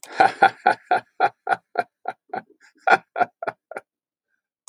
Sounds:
Laughter